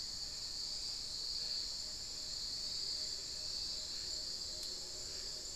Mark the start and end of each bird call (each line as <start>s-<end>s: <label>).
0.0s-0.6s: Black-faced Antthrush (Formicarius analis)
0.3s-5.6s: Tawny-bellied Screech-Owl (Megascops watsonii)